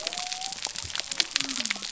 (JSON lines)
{"label": "biophony", "recorder": "SoundTrap 300"}